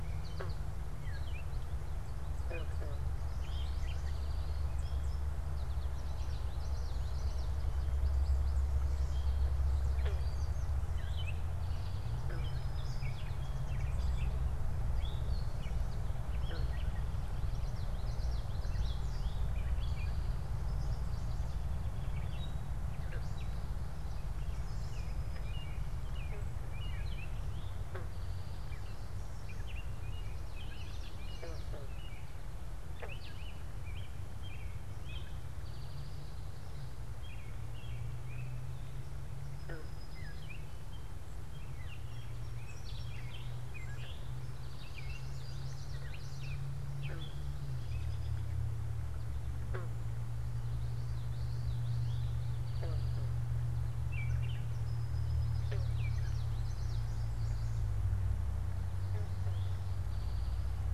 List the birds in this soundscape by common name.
American Goldfinch, unidentified bird, Eastern Towhee, Common Yellowthroat, American Robin